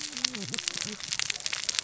{"label": "biophony, cascading saw", "recorder": "SoundTrap 600 or HydroMoth"}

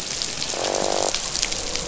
{"label": "biophony, croak", "recorder": "SoundTrap 500"}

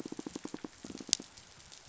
{"label": "biophony, pulse", "recorder": "SoundTrap 500"}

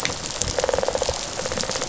{"label": "biophony, rattle response", "recorder": "SoundTrap 500"}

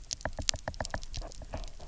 {"label": "biophony, knock", "recorder": "SoundTrap 300"}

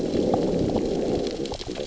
{"label": "biophony, growl", "recorder": "SoundTrap 600 or HydroMoth"}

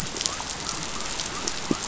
{"label": "biophony", "recorder": "SoundTrap 500"}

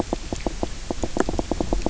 {"label": "biophony, knock croak", "recorder": "SoundTrap 300"}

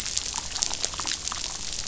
{"label": "biophony, damselfish", "recorder": "SoundTrap 500"}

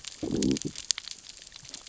{"label": "biophony, growl", "recorder": "SoundTrap 600 or HydroMoth"}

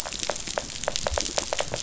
{"label": "biophony", "recorder": "SoundTrap 500"}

